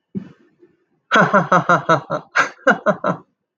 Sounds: Laughter